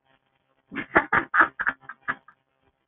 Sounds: Laughter